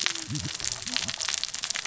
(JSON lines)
{"label": "biophony, cascading saw", "recorder": "SoundTrap 600 or HydroMoth"}